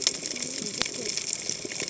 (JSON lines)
{"label": "biophony, cascading saw", "recorder": "HydroMoth"}